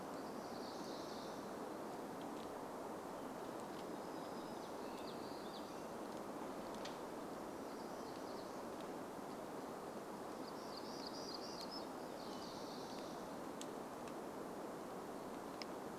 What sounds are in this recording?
warbler song, American Robin song